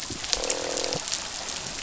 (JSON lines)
{"label": "biophony, croak", "recorder": "SoundTrap 500"}